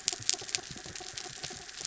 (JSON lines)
{"label": "anthrophony, mechanical", "recorder": "SoundTrap 300"}